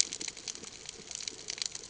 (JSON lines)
{"label": "ambient", "recorder": "HydroMoth"}